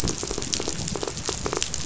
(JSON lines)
{"label": "biophony", "recorder": "SoundTrap 500"}